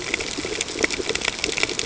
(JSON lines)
{"label": "ambient", "recorder": "HydroMoth"}